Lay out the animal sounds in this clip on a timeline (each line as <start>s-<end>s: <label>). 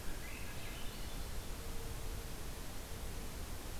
0.0s-1.6s: Swainson's Thrush (Catharus ustulatus)